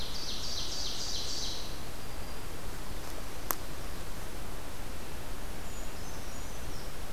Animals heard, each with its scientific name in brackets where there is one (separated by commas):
Brown Creeper (Certhia americana), Black-throated Green Warbler (Setophaga virens), Ovenbird (Seiurus aurocapilla)